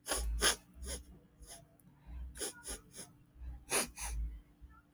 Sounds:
Sniff